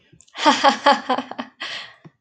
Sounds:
Laughter